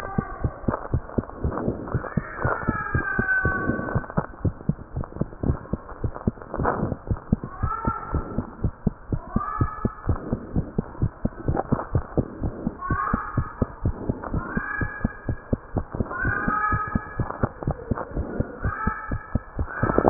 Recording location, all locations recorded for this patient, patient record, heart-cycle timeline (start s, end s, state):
mitral valve (MV)
aortic valve (AV)+pulmonary valve (PV)+tricuspid valve (TV)+mitral valve (MV)
#Age: Child
#Sex: Female
#Height: 106.0 cm
#Weight: 20.5 kg
#Pregnancy status: False
#Murmur: Absent
#Murmur locations: nan
#Most audible location: nan
#Systolic murmur timing: nan
#Systolic murmur shape: nan
#Systolic murmur grading: nan
#Systolic murmur pitch: nan
#Systolic murmur quality: nan
#Diastolic murmur timing: nan
#Diastolic murmur shape: nan
#Diastolic murmur grading: nan
#Diastolic murmur pitch: nan
#Diastolic murmur quality: nan
#Outcome: Normal
#Campaign: 2015 screening campaign
0.00	4.28	unannotated
4.28	4.42	diastole
4.42	4.56	S1
4.56	4.68	systole
4.68	4.76	S2
4.76	4.94	diastole
4.94	5.04	S1
5.04	5.16	systole
5.16	5.28	S2
5.28	5.44	diastole
5.44	5.60	S1
5.60	5.70	systole
5.70	5.80	S2
5.80	6.02	diastole
6.02	6.12	S1
6.12	6.24	systole
6.24	6.38	S2
6.38	6.58	diastole
6.58	6.74	S1
6.74	6.80	systole
6.80	6.96	S2
6.96	7.08	diastole
7.08	7.20	S1
7.20	7.30	systole
7.30	7.44	S2
7.44	7.60	diastole
7.60	7.74	S1
7.74	7.84	systole
7.84	7.94	S2
7.94	8.12	diastole
8.12	8.26	S1
8.26	8.36	systole
8.36	8.46	S2
8.46	8.62	diastole
8.62	8.74	S1
8.74	8.84	systole
8.84	8.94	S2
8.94	9.10	diastole
9.10	9.22	S1
9.22	9.34	systole
9.34	9.44	S2
9.44	9.58	diastole
9.58	9.72	S1
9.72	9.82	systole
9.82	9.92	S2
9.92	10.08	diastole
10.08	10.22	S1
10.22	10.30	systole
10.30	10.40	S2
10.40	10.54	diastole
10.54	10.68	S1
10.68	10.76	systole
10.76	10.86	S2
10.86	11.00	diastole
11.00	11.12	S1
11.12	11.22	systole
11.22	11.32	S2
11.32	11.46	diastole
11.46	11.60	S1
11.60	11.70	systole
11.70	11.80	S2
11.80	11.94	diastole
11.94	12.04	S1
12.04	12.16	systole
12.16	12.26	S2
12.26	12.42	diastole
12.42	12.56	S1
12.56	12.64	systole
12.64	12.74	S2
12.74	12.88	diastole
12.88	13.00	S1
13.00	13.12	systole
13.12	13.22	S2
13.22	13.36	diastole
13.36	13.48	S1
13.48	13.58	systole
13.58	13.70	S2
13.70	13.84	diastole
13.84	13.98	S1
13.98	14.08	systole
14.08	14.18	S2
14.18	14.32	diastole
14.32	14.46	S1
14.46	14.54	systole
14.54	14.64	S2
14.64	14.80	diastole
14.80	14.90	S1
14.90	15.02	systole
15.02	15.12	S2
15.12	15.28	diastole
15.28	15.38	S1
15.38	15.48	systole
15.48	15.62	S2
15.62	15.76	diastole
15.76	15.86	S1
15.86	15.94	systole
15.94	16.08	S2
16.08	16.24	diastole
16.24	16.38	S1
16.38	16.46	systole
16.46	16.56	S2
16.56	16.72	diastole
16.72	16.82	S1
16.82	16.94	systole
16.94	17.04	S2
17.04	17.18	diastole
17.18	17.28	S1
17.28	17.42	systole
17.42	17.52	S2
17.52	17.66	diastole
17.66	17.78	S1
17.78	17.90	systole
17.90	18.00	S2
18.00	18.14	diastole
18.14	18.28	S1
18.28	18.38	systole
18.38	18.48	S2
18.48	18.60	diastole
18.60	18.74	S1
18.74	18.82	systole
18.82	18.94	S2
18.94	19.08	diastole
19.08	19.20	S1
19.20	19.30	systole
19.30	19.42	S2
19.42	19.56	diastole
19.56	19.70	S1
19.70	20.10	unannotated